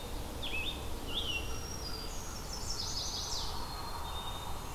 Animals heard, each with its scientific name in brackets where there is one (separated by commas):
Black-capped Chickadee (Poecile atricapillus), Black-and-white Warbler (Mniotilta varia), American Crow (Corvus brachyrhynchos), Scarlet Tanager (Piranga olivacea), Black-throated Green Warbler (Setophaga virens), Chestnut-sided Warbler (Setophaga pensylvanica)